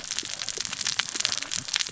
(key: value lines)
label: biophony, cascading saw
recorder: SoundTrap 600 or HydroMoth